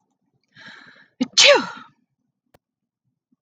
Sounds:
Sneeze